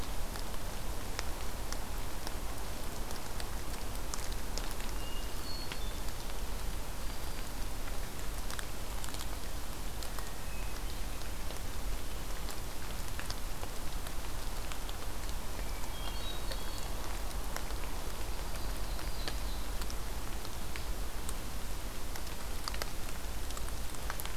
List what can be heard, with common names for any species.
Hermit Thrush, Black-throated Green Warbler, Ovenbird